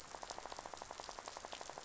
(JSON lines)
{"label": "biophony, rattle", "recorder": "SoundTrap 500"}